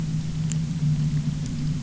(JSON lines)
{"label": "anthrophony, boat engine", "recorder": "SoundTrap 300"}